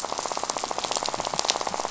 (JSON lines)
{"label": "biophony, rattle", "recorder": "SoundTrap 500"}